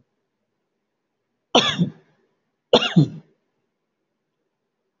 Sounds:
Cough